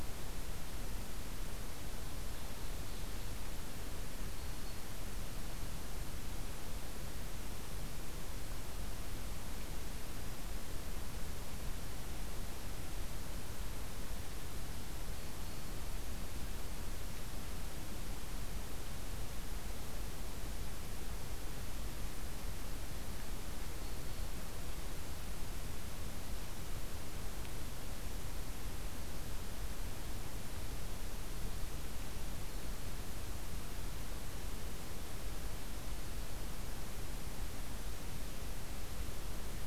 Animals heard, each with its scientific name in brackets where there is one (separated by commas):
Black-throated Green Warbler (Setophaga virens), Ovenbird (Seiurus aurocapilla)